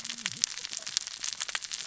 {"label": "biophony, cascading saw", "recorder": "SoundTrap 600 or HydroMoth"}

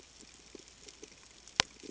{"label": "ambient", "recorder": "HydroMoth"}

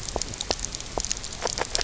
{"label": "biophony, grazing", "recorder": "SoundTrap 300"}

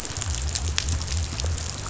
{"label": "biophony", "recorder": "SoundTrap 500"}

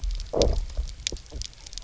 {"label": "biophony, knock croak", "recorder": "SoundTrap 300"}
{"label": "biophony, low growl", "recorder": "SoundTrap 300"}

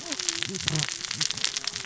{"label": "biophony, cascading saw", "recorder": "SoundTrap 600 or HydroMoth"}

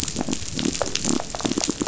{"label": "biophony", "recorder": "SoundTrap 500"}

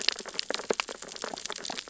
{"label": "biophony, sea urchins (Echinidae)", "recorder": "SoundTrap 600 or HydroMoth"}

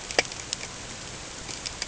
{"label": "ambient", "recorder": "HydroMoth"}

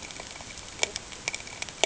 {"label": "ambient", "recorder": "HydroMoth"}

